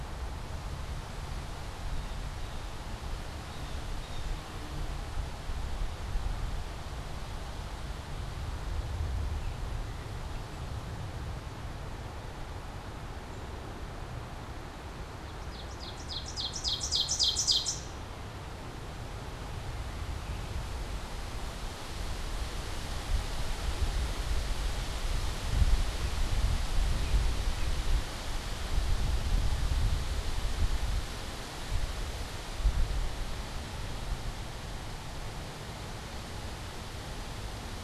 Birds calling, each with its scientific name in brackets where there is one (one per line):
Ovenbird (Seiurus aurocapilla)
Blue Jay (Cyanocitta cristata)